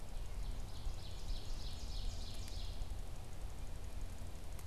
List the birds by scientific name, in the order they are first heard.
Seiurus aurocapilla